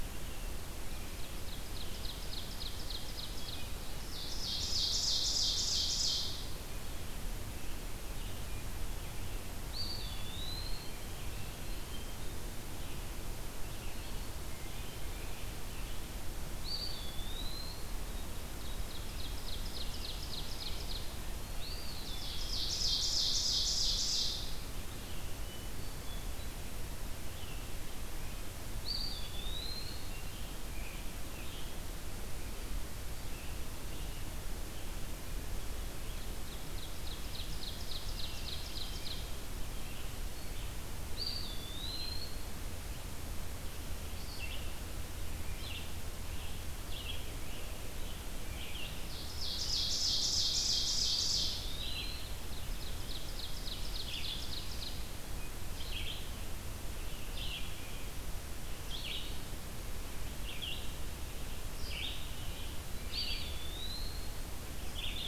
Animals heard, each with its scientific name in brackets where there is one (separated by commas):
Scarlet Tanager (Piranga olivacea), Eastern Wood-Pewee (Contopus virens), Red-eyed Vireo (Vireo olivaceus), Hermit Thrush (Catharus guttatus), Ovenbird (Seiurus aurocapilla)